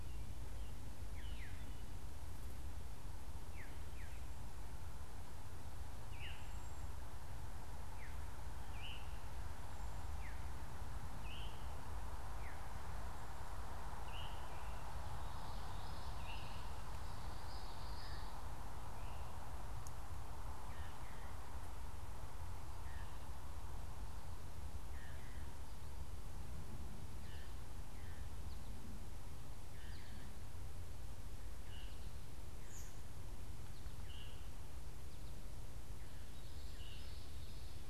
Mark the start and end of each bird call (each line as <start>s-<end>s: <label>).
0.8s-14.8s: Veery (Catharus fuscescens)
15.0s-18.4s: Common Yellowthroat (Geothlypis trichas)
16.1s-16.7s: Veery (Catharus fuscescens)
17.8s-28.7s: Veery (Catharus fuscescens)
26.9s-29.0s: American Goldfinch (Spinus tristis)
31.3s-37.9s: Veery (Catharus fuscescens)
33.3s-35.6s: American Goldfinch (Spinus tristis)
36.2s-37.8s: Common Yellowthroat (Geothlypis trichas)